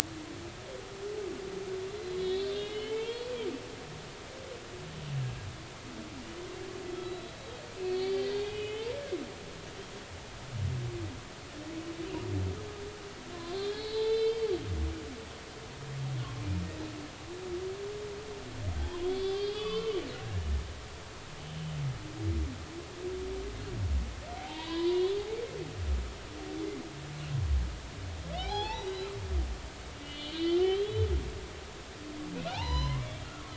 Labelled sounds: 1.9	3.3	humpback whale, 0.83 to 4.4 kHz
7.0	7.4	humpback whale, 3.8 to 4.0 kHz
7.7	8.9	humpback whale, 2.0 to 4.7 kHz
13.6	14.5	humpback whale, 0.83 to 5.1 kHz
18.8	20.0	humpback whale, 0.99 to 5.2 kHz
24.4	25.2	humpback whale, 0.80 to 4.2 kHz
28.4	29.1	humpback whale, 0.80 to 4.5 kHz
30.0	31.1	humpback whale, 2.8 to 4.5 kHz
32.5	33.5	humpback whale, 0.80 to 6.1 kHz

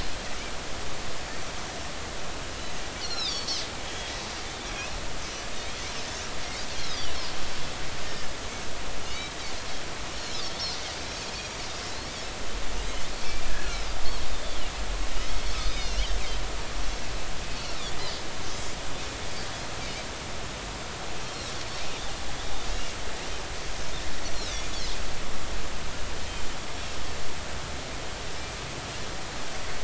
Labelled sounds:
3.0	4.1	Pacific white-sided dolphin, 3.0 to 5.8 kHz
6.7	7.0	Pacific white-sided dolphin, 3.6 to 4.5 kHz
8.0	8.3	Pacific white-sided dolphin, 1.7 to 1.9 kHz
9.0	9.3	Pacific white-sided dolphin, 2.8 to 3.1 kHz
13.6	14.6	Pacific white-sided dolphin, 3.4 to 4.5 kHz
15.6	16.2	Pacific white-sided dolphin, 2.7 to 6.0 kHz
17.5	17.8	Pacific white-sided dolphin, 4.1 to 4.4 kHz
18.5	18.8	Pacific white-sided dolphin, 4.8 to 5.1 kHz
22.7	22.9	Pacific white-sided dolphin, 2.7 to 2.9 kHz

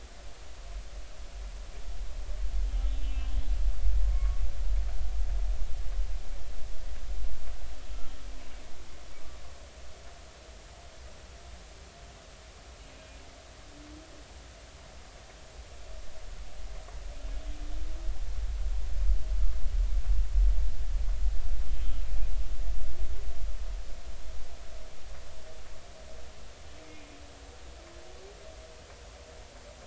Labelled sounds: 2.9	3.4	humpback whale, 2.6 to 3.2 kHz
4.0	4.4	humpback whale, 1.0 to 1.2 kHz

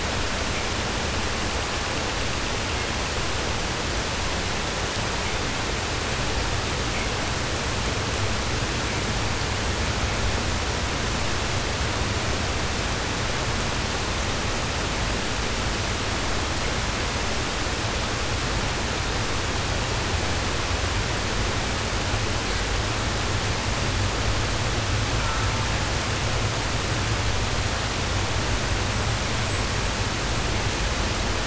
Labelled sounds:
25.0	25.8	killer whale, southern resident, 0.38 to 1.9 kHz

